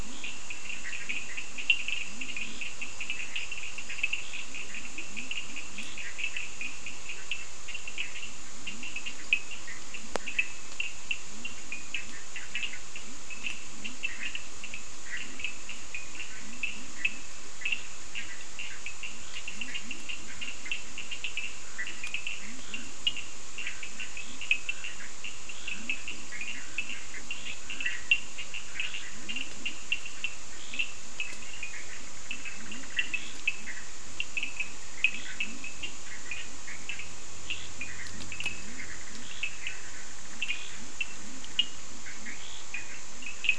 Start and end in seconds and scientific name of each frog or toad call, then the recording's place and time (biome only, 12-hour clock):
0.0	3.7	Leptodactylus latrans
0.0	43.5	Sphaenorhynchus surdus
4.2	6.7	Leptodactylus latrans
5.7	6.3	Scinax perereca
8.2	43.5	Leptodactylus latrans
30.3	31.3	Scinax perereca
34.9	42.8	Scinax perereca
Atlantic Forest, 4:30am